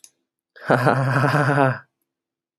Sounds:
Laughter